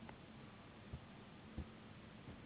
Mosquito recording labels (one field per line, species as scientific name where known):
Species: Anopheles gambiae s.s.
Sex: female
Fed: unfed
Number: one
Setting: insect culture